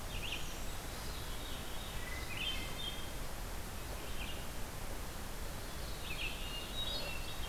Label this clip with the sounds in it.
Red-eyed Vireo, Veery, Hermit Thrush